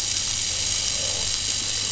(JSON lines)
{"label": "anthrophony, boat engine", "recorder": "SoundTrap 500"}